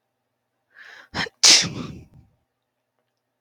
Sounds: Sneeze